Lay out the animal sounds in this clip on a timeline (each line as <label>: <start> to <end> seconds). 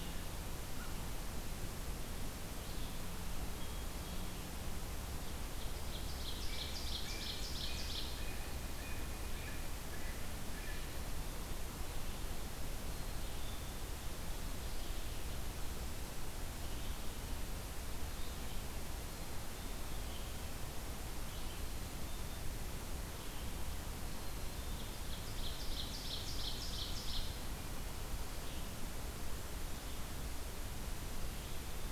Red-eyed Vireo (Vireo olivaceus): 0.0 to 31.9 seconds
Ovenbird (Seiurus aurocapilla): 5.3 to 8.5 seconds
Blue Jay (Cyanocitta cristata): 6.5 to 11.0 seconds
Black-capped Chickadee (Poecile atricapillus): 12.8 to 13.9 seconds
Ovenbird (Seiurus aurocapilla): 24.2 to 27.7 seconds